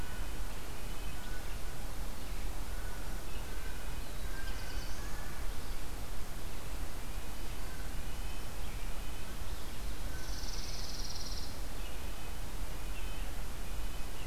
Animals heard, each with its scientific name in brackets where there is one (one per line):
Red-breasted Nuthatch (Sitta canadensis)
Chipping Sparrow (Spizella passerina)
Black-throated Blue Warbler (Setophaga caerulescens)